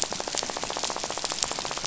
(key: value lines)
label: biophony, rattle
recorder: SoundTrap 500